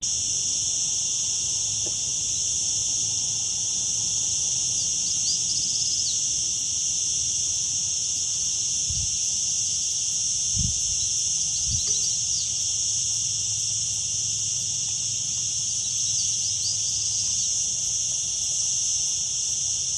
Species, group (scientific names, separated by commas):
Cicada barbara, Cicadidae